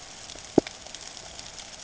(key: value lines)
label: ambient
recorder: HydroMoth